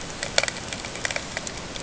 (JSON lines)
{"label": "ambient", "recorder": "HydroMoth"}